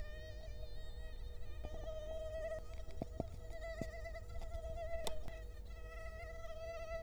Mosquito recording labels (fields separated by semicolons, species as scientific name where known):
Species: Culex quinquefasciatus; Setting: cup